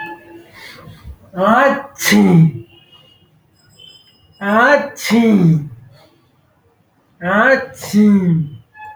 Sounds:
Sneeze